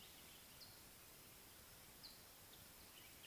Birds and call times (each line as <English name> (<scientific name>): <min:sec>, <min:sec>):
Mariqua Sunbird (Cinnyris mariquensis): 0:01.9
Common Bulbul (Pycnonotus barbatus): 0:03.2